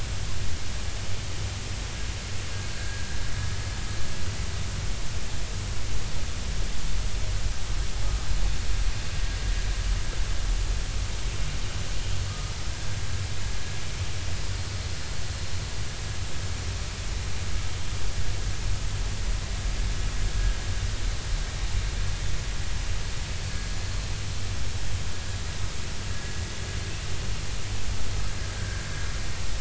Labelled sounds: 2.7	3.1	vessel noise, 1.5 to 1.7 kHz
26.1	26.4	vessel noise, 1.6 to 1.8 kHz
28.5	28.8	vessel noise, 1.5 to 1.8 kHz

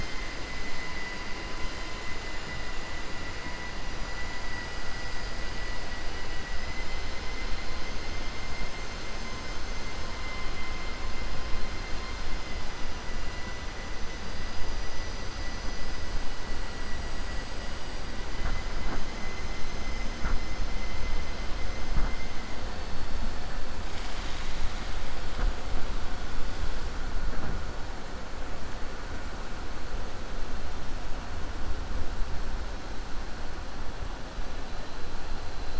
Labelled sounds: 0.6	1.1	vessel noise, 1.0 to 3.0 kHz
6.5	7.5	vessel noise, 1.9 to 6.1 kHz

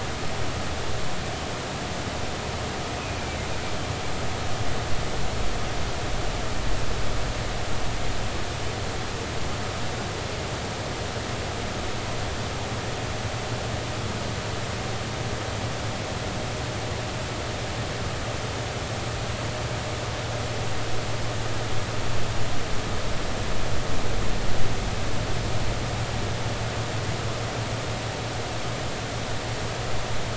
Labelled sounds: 3.0	3.5	humpback whale, 2.0 to 2.6 kHz

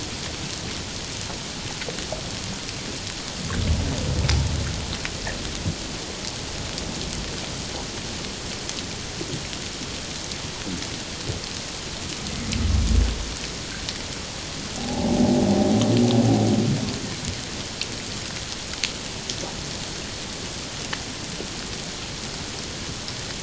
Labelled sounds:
14.8	15.3	humpback whale, 0.78 to 0.94 kHz

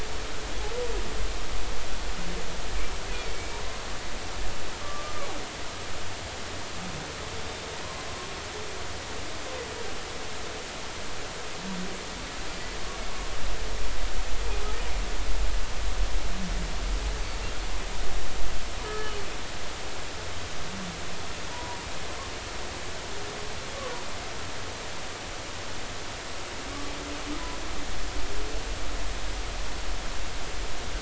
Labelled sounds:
3.1	3.6	humpback whale, 2.2 to 2.6 kHz
4.8	5.2	humpback whale, 1.1 to 1.2 kHz
17.2	17.4	humpback whale, 4.4 to 4.7 kHz
18.9	19.1	humpback whale, 1.6 to 1.8 kHz
21.5	21.8	humpback whale, 0.90 to 1.0 kHz

